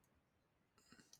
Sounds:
Sniff